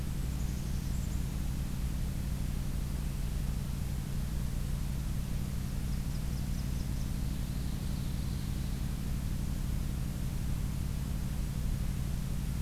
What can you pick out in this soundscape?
Golden-crowned Kinglet, Blackburnian Warbler, Ovenbird